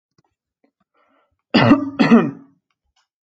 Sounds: Cough